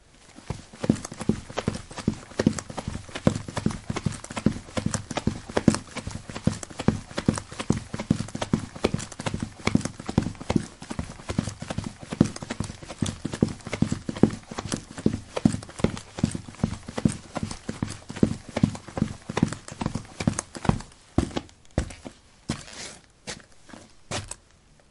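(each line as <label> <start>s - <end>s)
Rustling of clothes while running. 0.2s - 21.2s
Footsteps stamping repeatedly while running indoors. 0.3s - 21.1s
Slow foot stamping sounds indoors, slowing down from a run. 21.2s - 24.4s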